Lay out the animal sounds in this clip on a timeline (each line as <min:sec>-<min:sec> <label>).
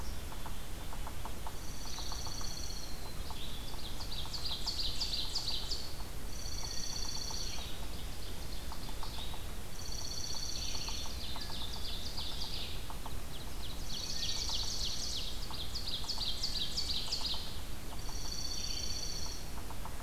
0:00.0-0:01.3 Black-capped Chickadee (Poecile atricapillus)
0:00.0-0:20.0 Red-eyed Vireo (Vireo olivaceus)
0:00.0-0:20.0 Yellow-bellied Sapsucker (Sphyrapicus varius)
0:01.4-0:03.1 Dark-eyed Junco (Junco hyemalis)
0:03.5-0:05.9 Ovenbird (Seiurus aurocapilla)
0:06.1-0:07.8 Dark-eyed Junco (Junco hyemalis)
0:07.5-0:09.6 Ovenbird (Seiurus aurocapilla)
0:09.6-0:11.2 Dark-eyed Junco (Junco hyemalis)
0:10.5-0:17.6 Ovenbird (Seiurus aurocapilla)
0:13.8-0:15.1 Dark-eyed Junco (Junco hyemalis)
0:17.7-0:19.7 Dark-eyed Junco (Junco hyemalis)